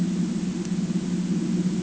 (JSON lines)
{"label": "ambient", "recorder": "HydroMoth"}